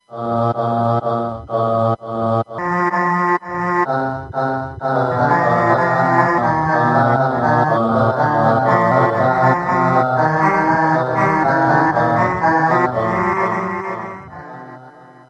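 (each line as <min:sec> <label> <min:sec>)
0:00.0 Distorted melodic electronic voice on a synthesizer. 0:15.3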